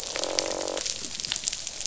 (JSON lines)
{"label": "biophony, croak", "recorder": "SoundTrap 500"}